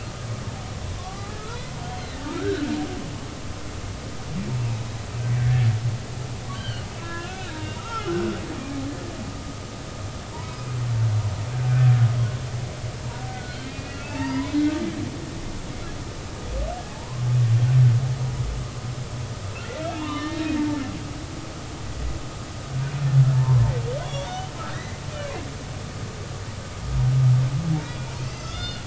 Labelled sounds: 1.0	2.7	humpback whale, 1.0 to 1.8 kHz
4.6	4.8	humpback whale, 2.4 to 2.8 kHz
5.4	5.7	humpback whale, 1.6 to 1.9 kHz
6.5	8.3	humpback whale, 0.83 to 4.2 kHz
13.3	14.8	humpback whale, 0.83 to 2.9 kHz
16.9	17.3	humpback whale, 0.80 to 1.2 kHz
20.0	20.6	humpback whale, 0.86 to 4.3 kHz
23.3	23.6	humpback whale, 0.86 to 1.1 kHz
24.0	25.0	humpback whale, 1.8 to 3.5 kHz
27.8	28.8	humpback whale, 1.2 to 5.1 kHz

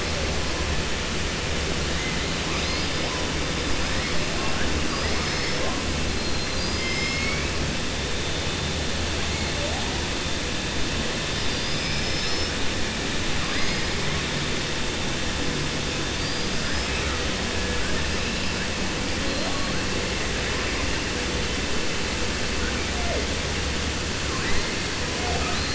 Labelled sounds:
6.7	7.5	killer whale, 1.3 to 3.1 kHz
16.1	16.9	killer whale, 4.5 to 5.3 kHz

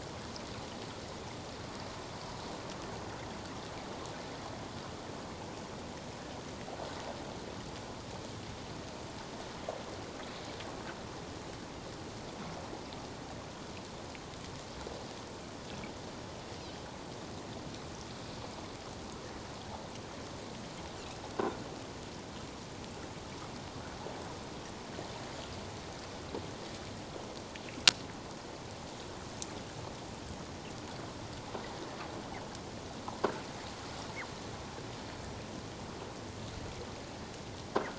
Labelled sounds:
37.7	37.9	croaking sound likely from a nearby submerged object, 1.3 to 1.7 kHz

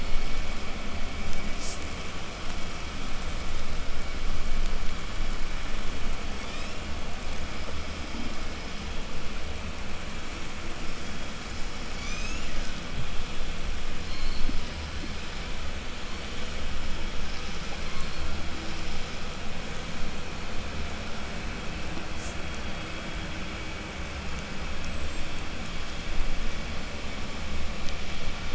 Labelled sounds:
6.1	7.1	killer whale, southern resident, 1.8 to 8.0 kHz
11.8	12.8	killer whale, southern resident, 0.68 to 8.0 kHz
13.8	14.8	killer whale, southern resident, 0.65 to 8.0 kHz

